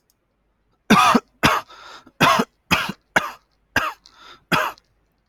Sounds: Cough